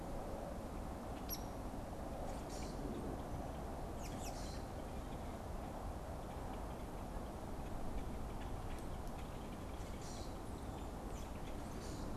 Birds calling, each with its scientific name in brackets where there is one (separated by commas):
American Robin (Turdus migratorius), Hairy Woodpecker (Dryobates villosus), Common Grackle (Quiscalus quiscula)